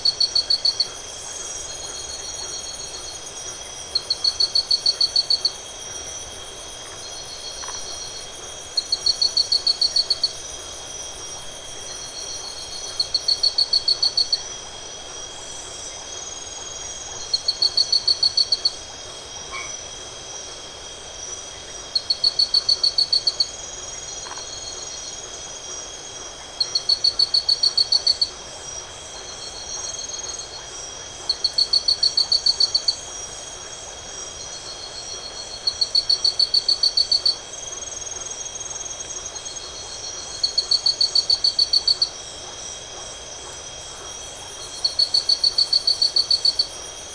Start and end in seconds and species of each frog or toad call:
0.0	46.5	Leptodactylus notoaktites
19.4	20.0	Boana albomarginata
8:30pm

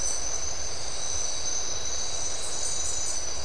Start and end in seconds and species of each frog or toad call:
none
~3am

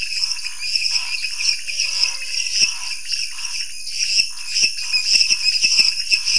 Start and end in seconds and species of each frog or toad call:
0.0	6.3	Dendropsophus minutus
0.0	6.3	Dendropsophus nanus
0.0	6.3	Leptodactylus podicipinus
0.0	6.3	Scinax fuscovarius
1.5	2.9	Physalaemus albonotatus
9:30pm

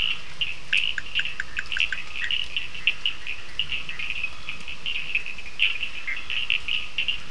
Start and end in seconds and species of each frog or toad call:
0.0	7.3	Sphaenorhynchus surdus
5.9	6.3	Boana bischoffi
8:30pm

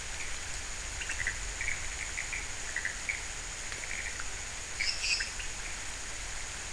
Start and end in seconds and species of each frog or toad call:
0.0	5.5	Leptodactylus podicipinus
0.0	5.5	Pithecopus azureus
4.5	5.5	Dendropsophus minutus
~4am

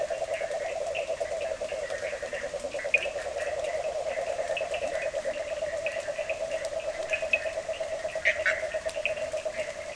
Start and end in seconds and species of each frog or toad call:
0.0	9.9	Boana bischoffi
0.0	9.9	Rhinella icterica
0.0	9.9	Sphaenorhynchus surdus
2.3	3.2	Leptodactylus latrans
4.8	5.6	Leptodactylus latrans
11:30pm

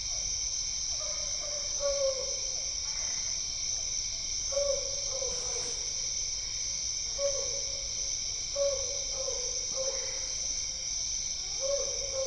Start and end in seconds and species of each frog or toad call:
0.0	4.0	Physalaemus cuvieri
2.8	3.4	Boana albopunctata
9.7	10.5	Boana albopunctata
7:30pm

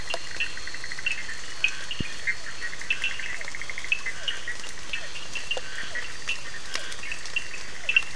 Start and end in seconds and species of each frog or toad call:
0.0	8.1	Boana bischoffi
0.0	8.1	Elachistocleis bicolor
0.0	8.1	Scinax perereca
0.0	8.1	Sphaenorhynchus surdus
2.1	8.1	Physalaemus cuvieri
10pm

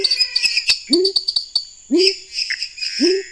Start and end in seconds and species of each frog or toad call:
0.0	0.7	Physalaemus albonotatus
0.0	1.9	Dendropsophus nanus
0.0	3.3	Dendropsophus minutus
0.0	3.3	Leptodactylus labyrinthicus
0.0	3.3	Leptodactylus podicipinus
0.0	3.3	Pithecopus azureus
~10pm

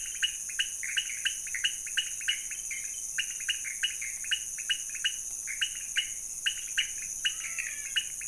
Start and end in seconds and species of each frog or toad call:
0.0	8.2	Leptodactylus podicipinus
0.0	8.2	Pithecopus azureus
7.1	8.2	Physalaemus albonotatus
~2am

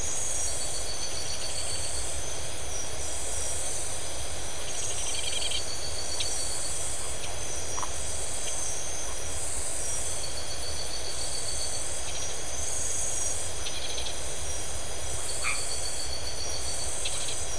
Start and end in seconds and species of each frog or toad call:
1.0	2.0	Scinax rizibilis
4.5	5.7	Scinax rizibilis
7.8	7.9	Phyllomedusa distincta
12.0	12.4	Scinax rizibilis
13.6	14.2	Scinax rizibilis
15.4	15.7	Boana albomarginata
17.0	17.4	Scinax rizibilis
~1am

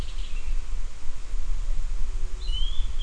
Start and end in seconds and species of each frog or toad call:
none
~5pm

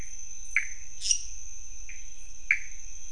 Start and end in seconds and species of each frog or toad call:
0.5	3.1	Pithecopus azureus
0.9	1.7	Dendropsophus minutus
1:30am

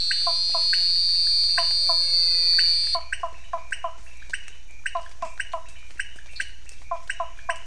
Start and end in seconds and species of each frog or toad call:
0.0	3.3	Elachistocleis matogrosso
0.0	7.6	Leptodactylus podicipinus
0.3	0.8	Physalaemus nattereri
1.4	2.1	Physalaemus nattereri
2.9	4.1	Physalaemus nattereri
4.9	5.8	Physalaemus nattereri
6.3	6.5	Dendropsophus nanus
6.8	7.6	Physalaemus nattereri
7pm

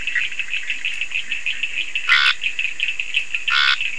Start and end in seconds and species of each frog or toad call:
0.0	0.6	Boana bischoffi
0.0	3.9	Leptodactylus latrans
2.0	3.9	Scinax perereca
3:30am

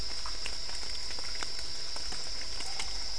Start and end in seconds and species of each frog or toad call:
0.4	3.1	Dendropsophus cruzi
8:30pm

